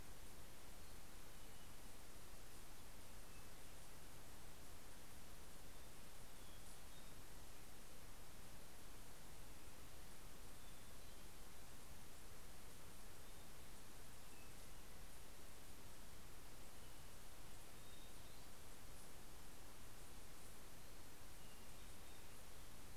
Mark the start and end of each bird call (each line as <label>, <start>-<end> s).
Hermit Thrush (Catharus guttatus), 5.6-7.6 s
Hermit Thrush (Catharus guttatus), 10.1-12.1 s
Hermit Thrush (Catharus guttatus), 12.9-15.2 s
Hermit Thrush (Catharus guttatus), 17.3-19.1 s
Hermit Thrush (Catharus guttatus), 21.1-23.0 s